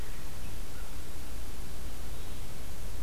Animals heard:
forest ambience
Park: Marsh-Billings-Rockefeller National Historical Park